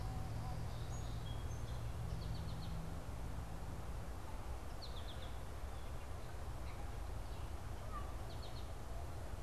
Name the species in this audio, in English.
Song Sparrow, American Goldfinch